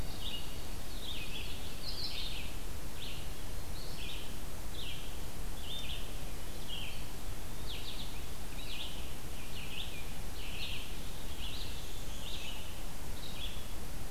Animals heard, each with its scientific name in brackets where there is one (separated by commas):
White-throated Sparrow (Zonotrichia albicollis), Red-eyed Vireo (Vireo olivaceus), Eastern Wood-Pewee (Contopus virens), Black-and-white Warbler (Mniotilta varia)